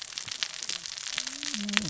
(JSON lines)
{"label": "biophony, cascading saw", "recorder": "SoundTrap 600 or HydroMoth"}